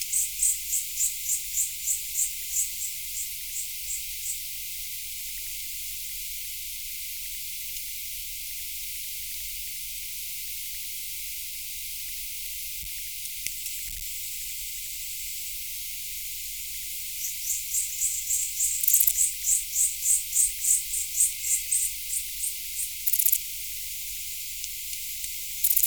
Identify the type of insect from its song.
orthopteran